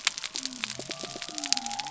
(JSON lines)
{"label": "biophony", "recorder": "SoundTrap 300"}